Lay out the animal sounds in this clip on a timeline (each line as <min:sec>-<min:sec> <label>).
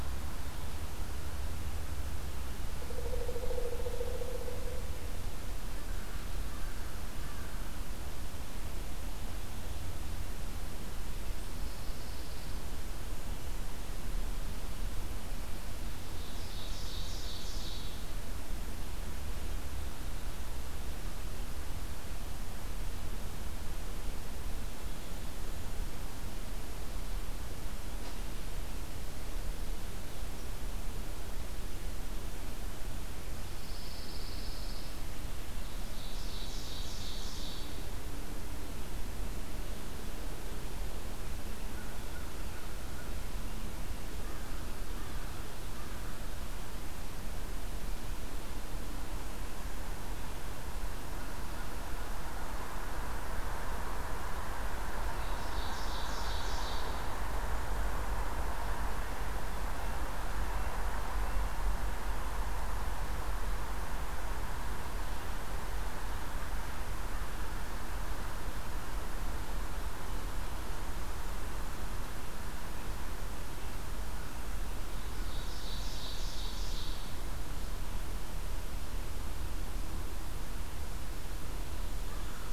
0:11.4-0:12.6 Pine Warbler (Setophaga pinus)
0:15.8-0:18.0 Ovenbird (Seiurus aurocapilla)
0:33.5-0:35.0 Pine Warbler (Setophaga pinus)
0:35.6-0:37.8 Ovenbird (Seiurus aurocapilla)
0:41.7-0:43.3 American Crow (Corvus brachyrhynchos)
0:44.2-0:46.3 American Crow (Corvus brachyrhynchos)
0:55.1-0:57.1 Ovenbird (Seiurus aurocapilla)
1:15.1-1:17.2 Ovenbird (Seiurus aurocapilla)